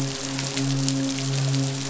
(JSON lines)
{"label": "biophony, midshipman", "recorder": "SoundTrap 500"}